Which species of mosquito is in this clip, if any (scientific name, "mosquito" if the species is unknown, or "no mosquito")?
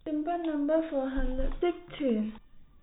no mosquito